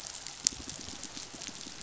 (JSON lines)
{"label": "biophony", "recorder": "SoundTrap 500"}